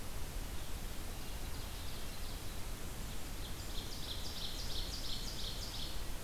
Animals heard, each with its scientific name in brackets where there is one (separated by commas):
Ovenbird (Seiurus aurocapilla)